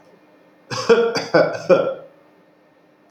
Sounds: Cough